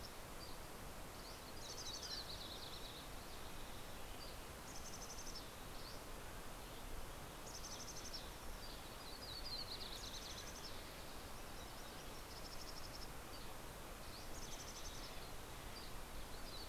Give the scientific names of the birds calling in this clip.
Pipilo chlorurus, Sitta canadensis, Poecile gambeli, Empidonax oberholseri, Oreortyx pictus, Setophaga coronata